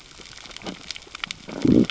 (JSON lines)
{"label": "biophony, growl", "recorder": "SoundTrap 600 or HydroMoth"}